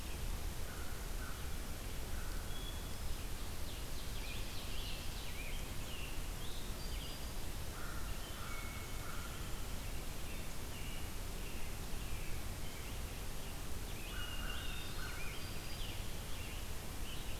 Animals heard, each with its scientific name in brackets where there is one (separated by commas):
Hermit Thrush (Catharus guttatus), American Crow (Corvus brachyrhynchos), Ovenbird (Seiurus aurocapilla), Scarlet Tanager (Piranga olivacea), American Robin (Turdus migratorius), Black-throated Green Warbler (Setophaga virens)